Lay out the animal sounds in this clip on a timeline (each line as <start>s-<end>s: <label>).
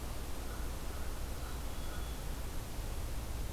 0.3s-2.1s: American Crow (Corvus brachyrhynchos)
1.2s-2.5s: Black-capped Chickadee (Poecile atricapillus)